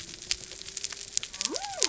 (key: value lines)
label: biophony
recorder: SoundTrap 300